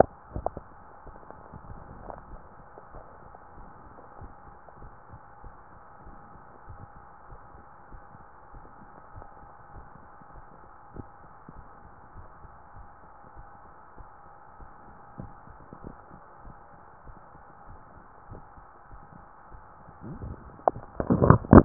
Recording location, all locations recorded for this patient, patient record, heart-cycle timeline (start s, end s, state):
tricuspid valve (TV)
aortic valve (AV)+pulmonary valve (PV)+tricuspid valve (TV)+mitral valve (MV)
#Age: nan
#Sex: Female
#Height: nan
#Weight: nan
#Pregnancy status: True
#Murmur: Absent
#Murmur locations: nan
#Most audible location: nan
#Systolic murmur timing: nan
#Systolic murmur shape: nan
#Systolic murmur grading: nan
#Systolic murmur pitch: nan
#Systolic murmur quality: nan
#Diastolic murmur timing: nan
#Diastolic murmur shape: nan
#Diastolic murmur grading: nan
#Diastolic murmur pitch: nan
#Diastolic murmur quality: nan
#Outcome: Normal
#Campaign: 2015 screening campaign
0.00	6.66	unannotated
6.66	6.82	S1
6.82	7.26	systole
7.26	7.36	S2
7.36	7.89	diastole
7.89	8.06	S1
8.06	8.50	systole
8.50	8.65	S2
8.65	9.11	diastole
9.11	9.30	S1
9.30	9.74	systole
9.74	9.84	S2
9.84	10.31	diastole
10.31	10.51	S1
10.51	10.96	systole
10.96	11.06	S2
11.06	11.52	diastole
11.52	11.74	S1
11.74	12.16	systole
12.16	12.28	S2
12.28	12.75	diastole
12.75	12.88	S1
12.88	13.30	systole
13.30	13.50	S2
13.50	13.94	diastole
13.94	14.10	S1
14.10	14.52	systole
14.52	14.73	S2
14.73	15.15	diastole
15.15	15.32	S1
15.32	15.76	systole
15.76	15.96	S2
15.96	16.40	diastole
16.40	16.58	S1
16.58	17.00	systole
17.00	17.21	S2
17.21	17.65	diastole
17.65	17.84	S1
17.84	18.30	systole
18.30	18.40	S2
18.40	18.88	diastole
18.88	19.08	S1
19.08	19.48	systole
19.48	19.62	S2
19.62	20.19	diastole
20.19	20.38	S1
20.38	21.65	unannotated